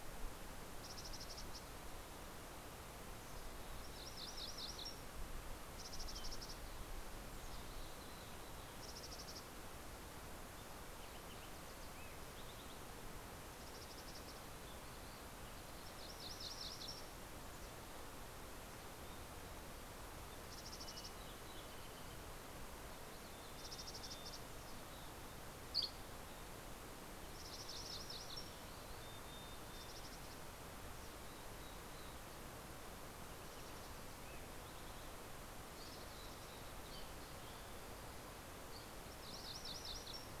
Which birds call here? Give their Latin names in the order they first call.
Poecile gambeli, Geothlypis tolmiei, Passerella iliaca, Empidonax oberholseri